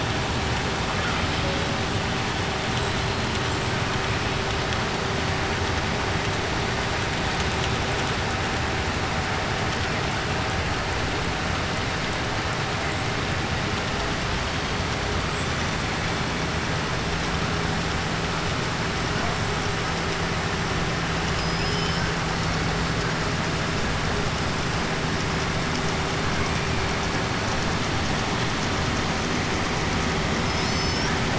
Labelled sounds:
21.2	22.1	killer whale, 4.6 to 6.1 kHz
30.4	31.2	killer whale, 3.5 to 6.1 kHz

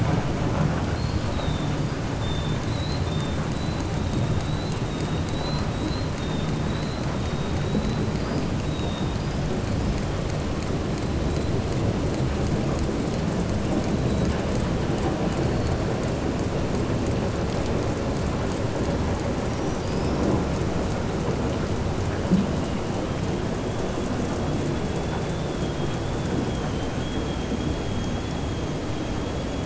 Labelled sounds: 0.9	1.7	killer whale, southern resident, 3.3 to 5.0 kHz
2.6	3.3	killer whale, southern resident, 3.6 to 5.0 kHz
4.9	5.7	killer whale, southern resident, 3.4 to 5.0 kHz

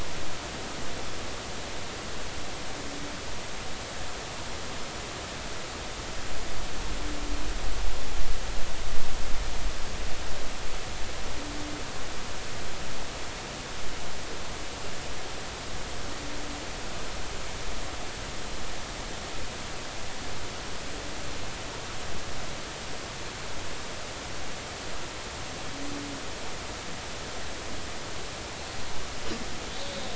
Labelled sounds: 29.7	30.0	killer whale, northern resident, 3.6 to 3.9 kHz

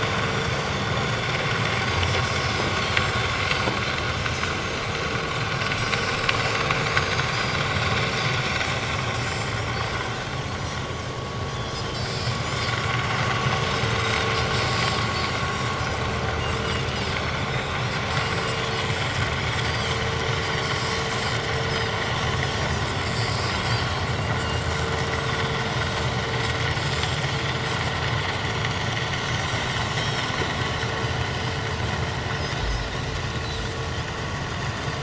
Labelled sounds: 0.3	1.3	Pacific white-sided dolphin, 5.5 to 6.9 kHz
2.7	3.0	Pacific white-sided dolphin, 4.2 to 4.6 kHz
6.9	7.6	Pacific white-sided dolphin, 4.7 to 6.7 kHz
9.3	9.5	Pacific white-sided dolphin, 6.9 to 7.5 kHz
10.6	10.8	Pacific white-sided dolphin, 6.8 to 7.0 kHz
11.5	12.3	Pacific white-sided dolphin, 3.3 to 5.4 kHz
13.9	14.3	Pacific white-sided dolphin, 3.5 to 6.4 kHz
17.5	17.8	Pacific white-sided dolphin, 3.4 to 3.8 kHz
18.2	18.5	Pacific white-sided dolphin, 4.6 to 4.8 kHz
19.6	20.0	Pacific white-sided dolphin, 4.4 to 6.3 kHz
20.4	20.8	Pacific white-sided dolphin, 4.3 to 5.8 kHz
21.4	22.0	Pacific white-sided dolphin, 5.3 to 6.3 kHz
23.1	24.1	Pacific white-sided dolphin, 4.4 to 8.0 kHz
25.3	25.6	Pacific white-sided dolphin, 3.3 to 8.0 kHz
28.5	28.8	Pacific white-sided dolphin, 5.8 to 5.9 kHz
29.3	30.3	Pacific white-sided dolphin, 3.6 to 5.6 kHz
32.6	32.9	Pacific white-sided dolphin, 5.0 to 5.4 kHz

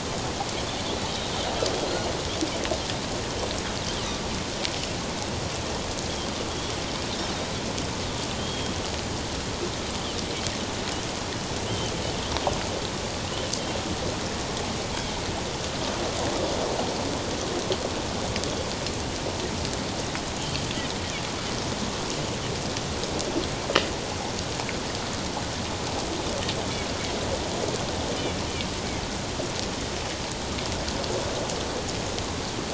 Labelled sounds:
8.4	8.8	Pacific white-sided dolphin, 3.1 to 3.3 kHz
11.7	11.9	Pacific white-sided dolphin, 2.9 to 3.2 kHz

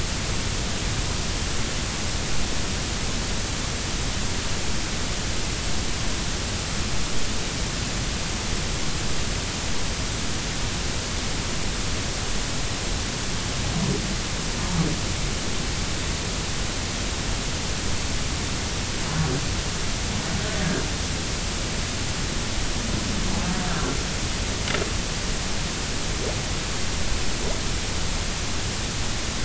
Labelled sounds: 23.7	24.0	humpback whale, 1.3 to 1.4 kHz

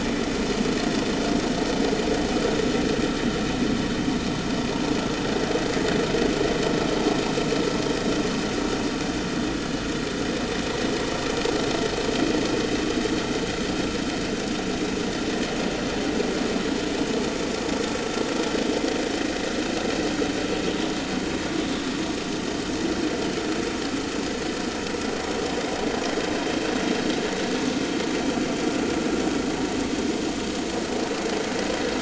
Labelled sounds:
16.8	17.0	vessel noise, 5.2 to 5.3 kHz
20.9	21.1	vessel noise, 4.0 to 4.1 kHz

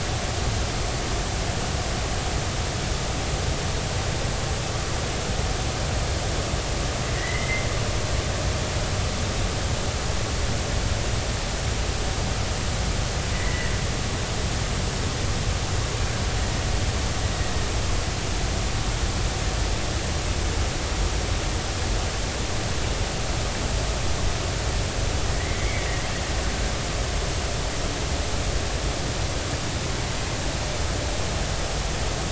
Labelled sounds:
7.2	7.7	killer whale, Bigg's (transient), 1.8 to 2.1 kHz
13.3	13.7	killer whale, Bigg's (transient), 1.8 to 2.1 kHz
25.3	25.9	killer whale, Bigg's (transient), 1.8 to 2.3 kHz

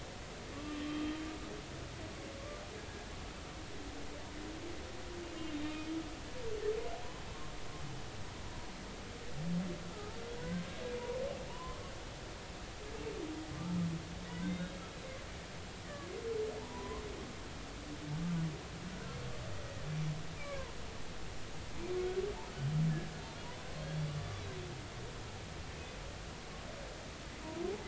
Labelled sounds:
0.5	1.1	humpback whale, 1.1 to 3.2 kHz
5.5	5.9	humpback whale, 2.3 to 3.7 kHz
9.9	10.2	humpback whale, 1.2 to 1.4 kHz
11.5	11.9	humpback whale, 0.86 to 1.2 kHz
13.6	14.8	humpback whale, 1.2 to 3.8 kHz
15.8	17.0	humpback whale, 0.86 to 2.0 kHz
20.4	20.6	humpback whale, 2.1 to 2.5 kHz
23.7	24.1	humpback whale, 3.2 to 4.4 kHz

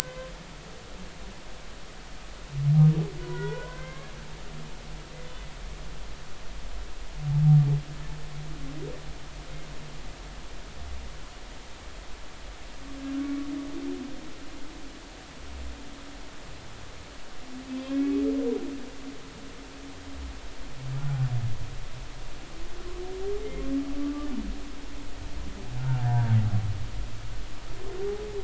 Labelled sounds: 1.0	1.3	humpback whale, 0.99 to 1.1 kHz
3.2	4.1	humpback whale, 0.83 to 2.2 kHz
17.7	18.2	humpback whale, 2.2 to 2.8 kHz
24.0	24.3	humpback whale, 1.1 to 1.2 kHz
26.0	26.4	humpback whale, 0.86 to 1.8 kHz

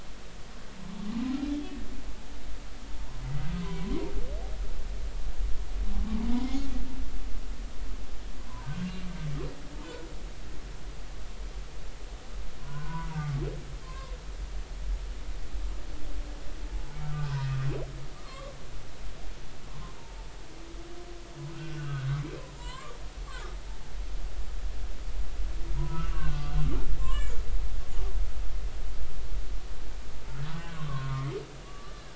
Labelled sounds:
3.6	4.1	humpback whale, 0.90 to 1.1 kHz
12.6	14.1	humpback whale, 0.90 to 1.5 kHz
17.0	17.5	humpback whale, 0.90 to 5.4 kHz
18.1	18.5	humpback whale, 0.99 to 1.3 kHz
19.7	20.0	humpback whale, 0.90 to 1.1 kHz
21.6	22.9	humpback whale, 0.90 to 4.2 kHz
25.7	26.4	humpback whale, 0.90 to 2.9 kHz
27.0	27.4	humpback whale, 0.99 to 2.4 kHz
30.5	32.1	humpback whale, 0.93 to 1.8 kHz

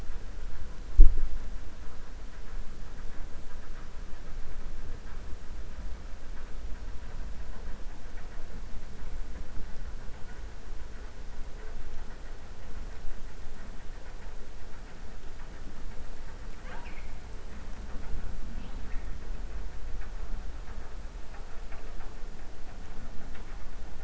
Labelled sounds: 16.5	17.1	killer whale, 0.52 to 5.2 kHz

